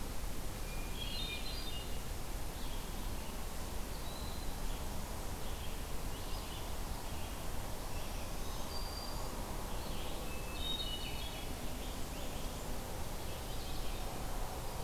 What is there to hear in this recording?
Red-eyed Vireo, Hermit Thrush, Eastern Wood-Pewee, Black-throated Green Warbler, Scarlet Tanager, Blackburnian Warbler